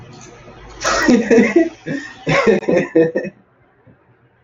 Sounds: Laughter